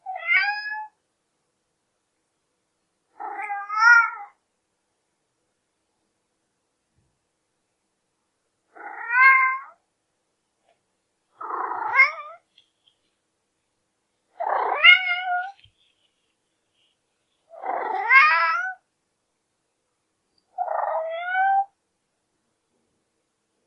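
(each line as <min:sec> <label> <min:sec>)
0:00.0 A blind cat meowing loudly. 0:00.9
0:03.2 A cat meowing deeply. 0:04.3
0:08.8 A blind cat named Oscar meows loudly. 0:09.7
0:11.4 A blind cat named Oscar meows sharply. 0:12.4
0:14.4 A cat meowing intensely. 0:15.5
0:17.6 A blind cat named Oscar meows harshly. 0:18.7
0:20.6 A blind cat named Oscar meowing heavily. 0:21.6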